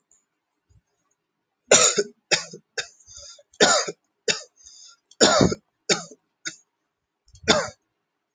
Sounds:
Cough